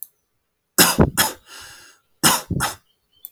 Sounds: Cough